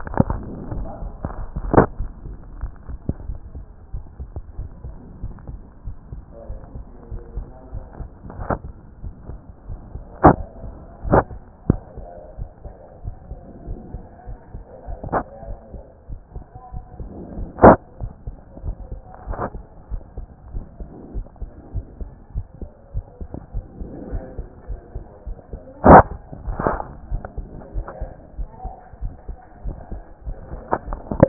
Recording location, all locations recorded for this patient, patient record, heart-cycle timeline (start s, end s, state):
aortic valve (AV)
aortic valve (AV)+pulmonary valve (PV)+tricuspid valve (TV)+mitral valve (MV)
#Age: Child
#Sex: Male
#Height: 131.0 cm
#Weight: 24.8 kg
#Pregnancy status: False
#Murmur: Absent
#Murmur locations: nan
#Most audible location: nan
#Systolic murmur timing: nan
#Systolic murmur shape: nan
#Systolic murmur grading: nan
#Systolic murmur pitch: nan
#Systolic murmur quality: nan
#Diastolic murmur timing: nan
#Diastolic murmur shape: nan
#Diastolic murmur grading: nan
#Diastolic murmur pitch: nan
#Diastolic murmur quality: nan
#Outcome: Normal
#Campaign: 2014 screening campaign
0.00	19.73	unannotated
19.73	19.90	diastole
19.90	20.02	S1
20.02	20.16	systole
20.16	20.26	S2
20.26	20.54	diastole
20.54	20.64	S1
20.64	20.80	systole
20.80	20.88	S2
20.88	21.14	diastole
21.14	21.26	S1
21.26	21.40	systole
21.40	21.50	S2
21.50	21.74	diastole
21.74	21.86	S1
21.86	22.00	systole
22.00	22.10	S2
22.10	22.34	diastole
22.34	22.46	S1
22.46	22.60	systole
22.60	22.70	S2
22.70	22.94	diastole
22.94	23.06	S1
23.06	23.20	systole
23.20	23.30	S2
23.30	23.54	diastole
23.54	23.66	S1
23.66	23.80	systole
23.80	23.88	S2
23.88	24.10	diastole
24.10	24.24	S1
24.24	24.38	systole
24.38	24.46	S2
24.46	24.68	diastole
24.68	24.80	S1
24.80	24.94	systole
24.94	25.04	S2
25.04	25.26	diastole
25.26	25.38	S1
25.38	25.52	systole
25.52	25.60	S2
25.60	25.84	diastole
25.84	31.28	unannotated